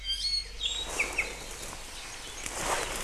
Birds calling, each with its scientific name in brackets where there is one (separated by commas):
Iiwi (Drepanis coccinea)